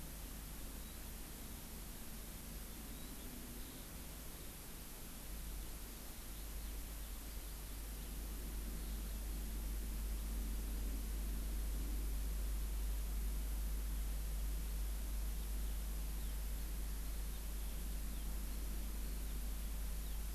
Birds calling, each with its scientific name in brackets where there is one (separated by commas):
Warbling White-eye (Zosterops japonicus), Eurasian Skylark (Alauda arvensis)